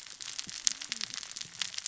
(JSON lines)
{"label": "biophony, cascading saw", "recorder": "SoundTrap 600 or HydroMoth"}